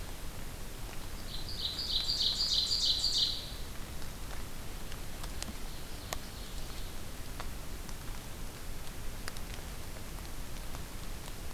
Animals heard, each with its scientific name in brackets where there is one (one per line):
Ovenbird (Seiurus aurocapilla)